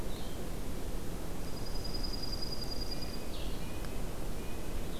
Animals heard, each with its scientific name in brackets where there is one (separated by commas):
Dark-eyed Junco (Junco hyemalis), Blue-headed Vireo (Vireo solitarius), Red-breasted Nuthatch (Sitta canadensis)